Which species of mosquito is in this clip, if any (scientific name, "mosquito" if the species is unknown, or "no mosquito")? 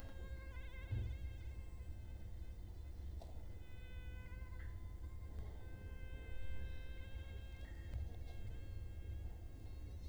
Culex quinquefasciatus